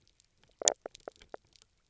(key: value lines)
label: biophony, knock croak
recorder: SoundTrap 300